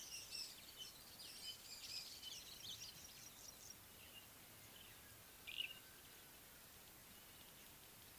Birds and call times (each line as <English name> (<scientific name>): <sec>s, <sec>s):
Rufous Chatterer (Argya rubiginosa): 1.3s
Pale Prinia (Prinia somalica): 3.2s